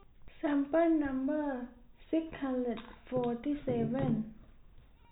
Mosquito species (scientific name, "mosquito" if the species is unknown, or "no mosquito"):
no mosquito